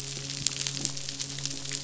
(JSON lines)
{"label": "biophony, midshipman", "recorder": "SoundTrap 500"}